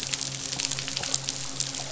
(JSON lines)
{"label": "biophony, midshipman", "recorder": "SoundTrap 500"}